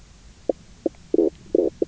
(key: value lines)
label: biophony, knock croak
recorder: SoundTrap 300